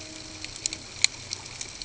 {"label": "ambient", "recorder": "HydroMoth"}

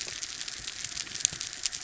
{"label": "anthrophony, mechanical", "recorder": "SoundTrap 300"}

